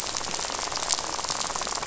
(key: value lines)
label: biophony, rattle
recorder: SoundTrap 500